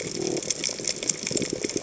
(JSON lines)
{"label": "biophony", "recorder": "HydroMoth"}